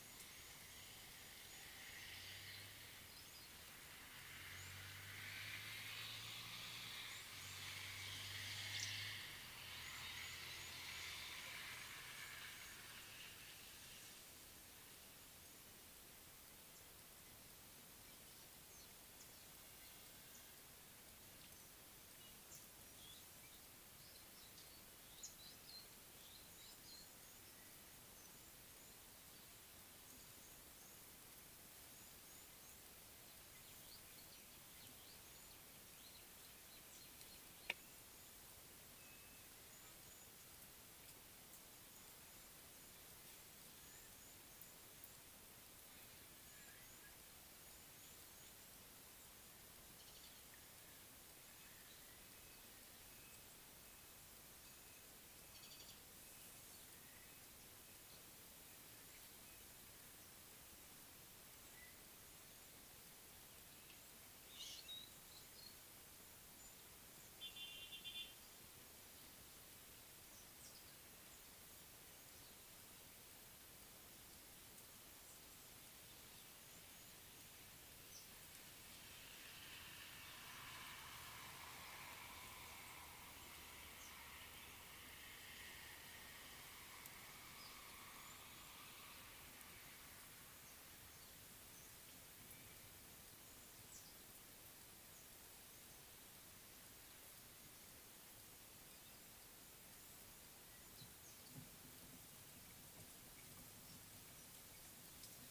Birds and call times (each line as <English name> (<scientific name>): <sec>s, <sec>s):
Mariqua Sunbird (Cinnyris mariquensis): 55.7s